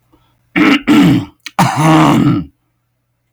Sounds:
Throat clearing